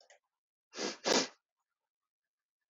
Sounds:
Sniff